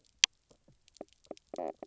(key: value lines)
label: biophony, knock croak
recorder: SoundTrap 300